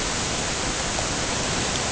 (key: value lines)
label: ambient
recorder: HydroMoth